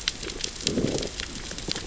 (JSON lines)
{"label": "biophony, growl", "recorder": "SoundTrap 600 or HydroMoth"}